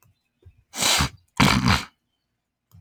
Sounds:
Sniff